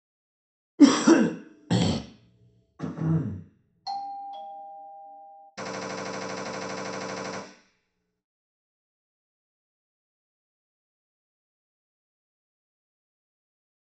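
At the start, someone coughs loudly. Then about 3 seconds in, a person coughs. Next, at about 4 seconds, a doorbell can be heard. Afterwards, about 6 seconds in, you can hear gunfire.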